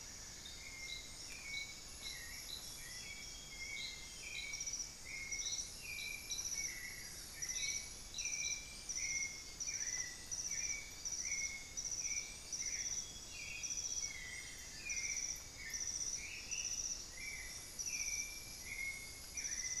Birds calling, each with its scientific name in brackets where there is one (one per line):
Black-faced Antthrush (Formicarius analis)
Amazonian Grosbeak (Cyanoloxia rothschildii)
White-necked Thrush (Turdus albicollis)
Amazonian Barred-Woodcreeper (Dendrocolaptes certhia)
Cinnamon-throated Woodcreeper (Dendrexetastes rufigula)